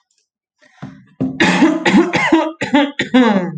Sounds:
Cough